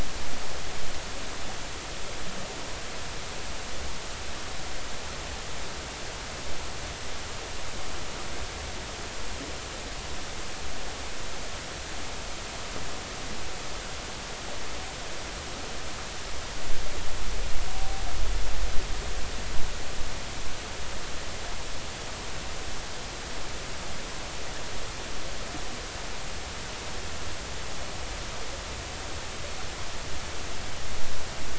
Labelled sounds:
17.7	18.1	humpback whale, 0.80 to 0.83 kHz

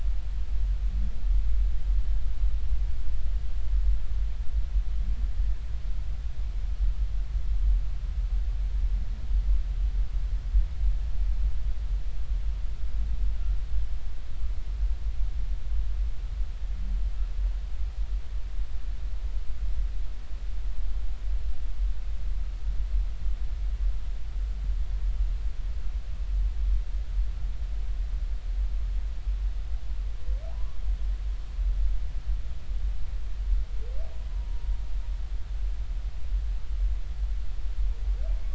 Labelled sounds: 30.5	30.8	humpback whale, 0.93 to 1.2 kHz
34.3	34.7	humpback whale, 0.90 to 1.1 kHz

